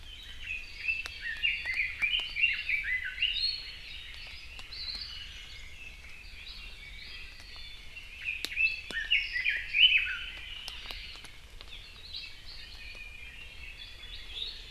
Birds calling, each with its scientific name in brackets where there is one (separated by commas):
Hawaii Akepa (Loxops coccineus), Red-billed Leiothrix (Leiothrix lutea), Iiwi (Drepanis coccinea)